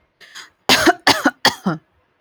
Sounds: Cough